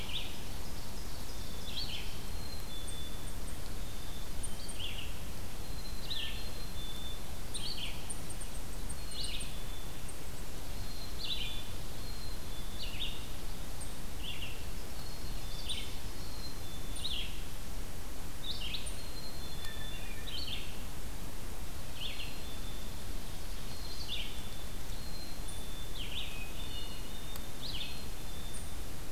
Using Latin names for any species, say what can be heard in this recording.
Seiurus aurocapilla, Vireo olivaceus, Poecile atricapillus, Tamias striatus, Catharus guttatus